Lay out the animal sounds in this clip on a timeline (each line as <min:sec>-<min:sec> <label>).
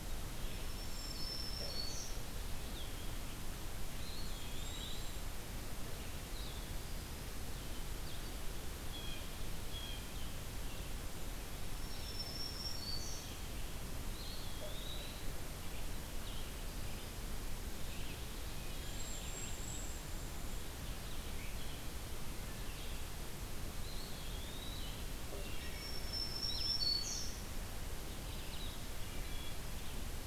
0:00.0-0:06.7 Blue-headed Vireo (Vireo solitarius)
0:00.4-0:02.3 Black-throated Green Warbler (Setophaga virens)
0:03.9-0:05.2 Eastern Wood-Pewee (Contopus virens)
0:04.3-0:05.3 Cedar Waxwing (Bombycilla cedrorum)
0:07.9-0:30.3 Blue-headed Vireo (Vireo solitarius)
0:08.8-0:10.1 Blue Jay (Cyanocitta cristata)
0:11.6-0:13.3 Black-throated Green Warbler (Setophaga virens)
0:14.0-0:15.4 Eastern Wood-Pewee (Contopus virens)
0:18.5-0:19.1 Wood Thrush (Hylocichla mustelina)
0:18.7-0:20.2 Cedar Waxwing (Bombycilla cedrorum)
0:23.6-0:25.0 Eastern Wood-Pewee (Contopus virens)
0:25.4-0:26.0 Wood Thrush (Hylocichla mustelina)
0:25.7-0:27.4 Black-throated Green Warbler (Setophaga virens)
0:28.9-0:29.7 Wood Thrush (Hylocichla mustelina)